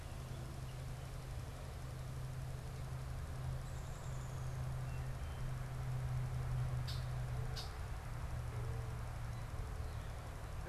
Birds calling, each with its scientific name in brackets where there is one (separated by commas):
Downy Woodpecker (Dryobates pubescens), Red-winged Blackbird (Agelaius phoeniceus), unidentified bird